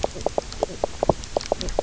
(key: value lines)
label: biophony, knock croak
recorder: SoundTrap 300